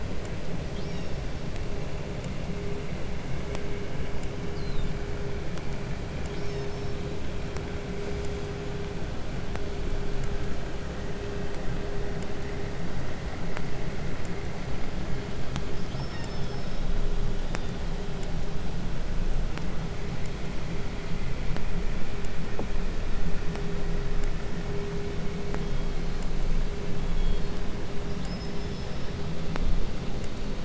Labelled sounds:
0.6	1.6	killer whale, southern resident, call S36, 1.2 to 5.9 kHz
4.3	5.2	killer whale, 3.2 to 8.0 kHz
5.9	7.1	killer whale, southern resident, call S36, 1.6 to 7.7 kHz
15.7	17.1	killer whale, southern resident, call S36, 1.2 to 6.1 kHz
17.2	17.9	killer whale, 2.7 to 6.0 kHz
25.4	26.5	killer whale, 2.7 to 5.4 kHz
26.8	29.2	killer whale, 1.4 to 5.6 kHz

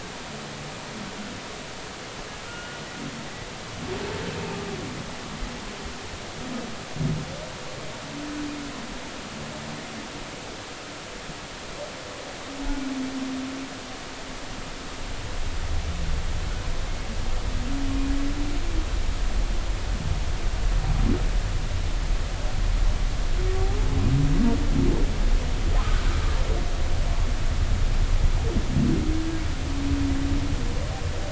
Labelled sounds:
2.5	2.8	humpback whale, 1.3 to 1.5 kHz

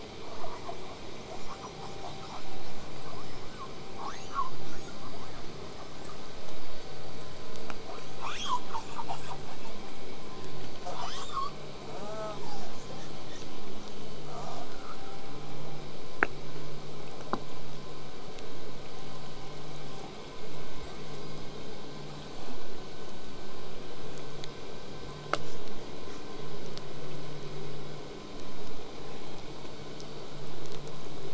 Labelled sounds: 0.2	0.9	killer whale, southern resident, call S10, 0.46 to 2.0 kHz
1.2	2.7	killer whale, southern resident, call S10, 0.27 to 8.0 kHz
2.9	3.7	killer whale, southern resident, L pod, call S19, 0.80 to 8.0 kHz
3.9	4.7	killer whale, southern resident, L pod, call S02iii, 0.54 to 8.0 kHz
4.7	5.5	killer whale, southern resident, 0.73 to 8.0 kHz
7.8	8.7	killer whale, southern resident, L pod, call S02iii, 0.35 to 8.0 kHz
8.7	9.4	killer whale, southern resident, call S10, 0.46 to 8.0 kHz
10.7	11.6	killer whale, southern resident, L pod, call S02iii, 0.38 to 8.0 kHz
11.8	13.5	killer whale, southern resident, call S10, 0.27 to 8.0 kHz
14.3	15.2	killer whale, southern resident, call S10, 0.27 to 8.0 kHz
20.8	21.5	killer whale, southern resident, 7.0 to 8.0 kHz
26.3	31.3	vessel noise, 0 to 8.0 kHz

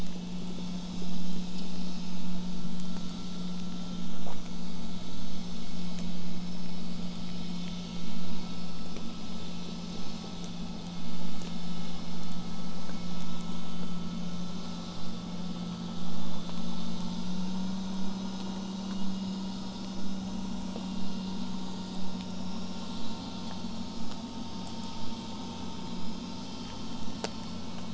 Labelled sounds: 22.9	27.9	vessel noise, 0 to 8.0 kHz

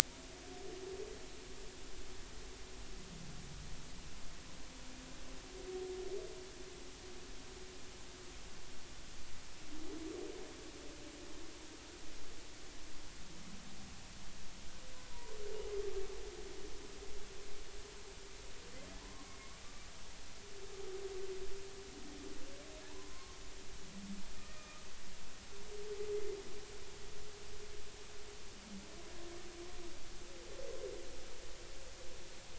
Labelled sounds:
15.1	15.4	humpback whale, 0.90 to 1.1 kHz
19.0	19.3	humpback whale, 0.93 to 1.2 kHz
22.8	23.4	humpback whale, 0.83 to 1.1 kHz
24.4	24.8	humpback whale, 1.2 to 1.9 kHz

